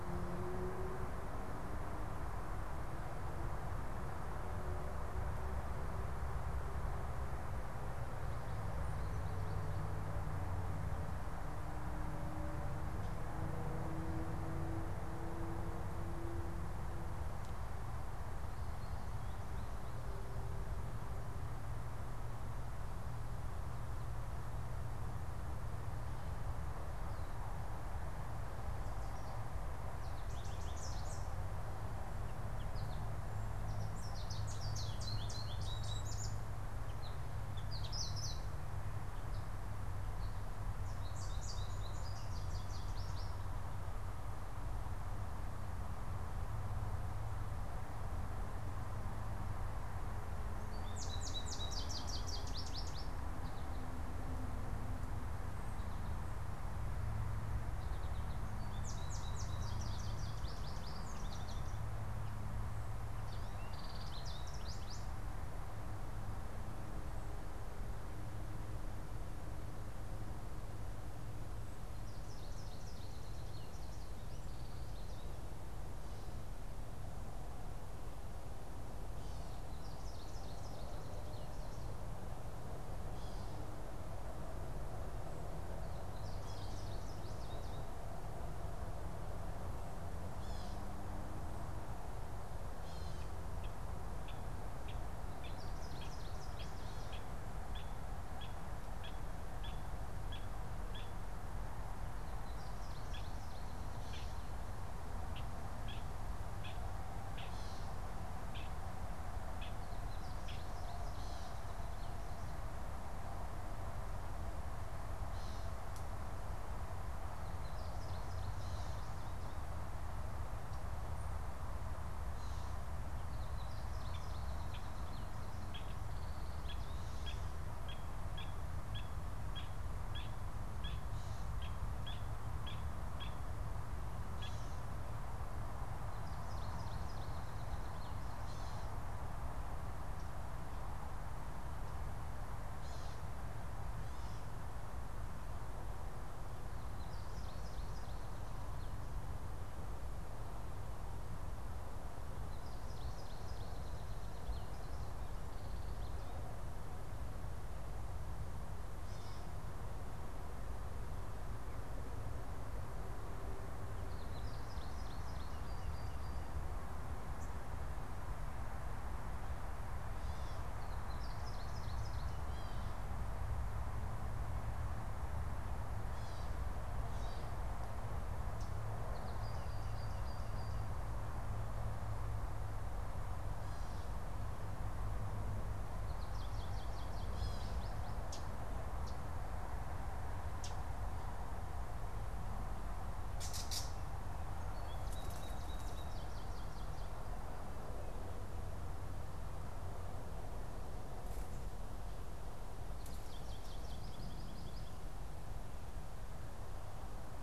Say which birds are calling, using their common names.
American Goldfinch, Gray Catbird, Common Yellowthroat